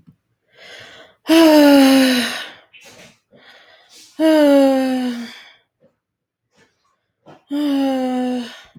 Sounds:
Sigh